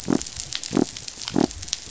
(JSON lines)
{"label": "biophony", "recorder": "SoundTrap 500"}